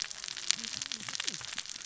{"label": "biophony, cascading saw", "recorder": "SoundTrap 600 or HydroMoth"}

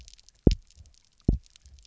{"label": "biophony, double pulse", "recorder": "SoundTrap 300"}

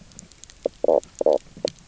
{"label": "biophony, knock croak", "recorder": "SoundTrap 300"}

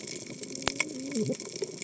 {"label": "biophony, cascading saw", "recorder": "HydroMoth"}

